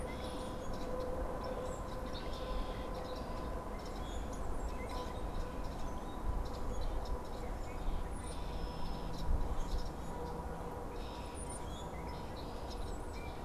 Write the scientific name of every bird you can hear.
Agelaius phoeniceus, Quiscalus quiscula, Molothrus ater